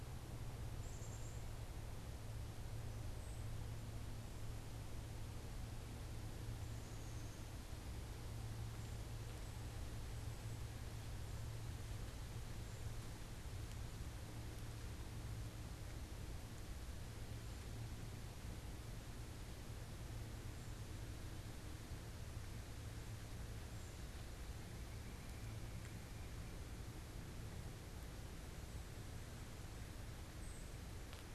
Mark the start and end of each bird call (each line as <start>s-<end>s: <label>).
0.6s-1.5s: Black-capped Chickadee (Poecile atricapillus)
6.8s-7.6s: Black-capped Chickadee (Poecile atricapillus)